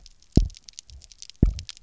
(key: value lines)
label: biophony, double pulse
recorder: SoundTrap 300